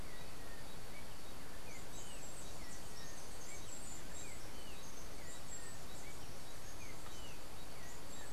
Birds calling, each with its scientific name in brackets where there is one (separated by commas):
Yellow-backed Oriole (Icterus chrysater), Chestnut-capped Brushfinch (Arremon brunneinucha)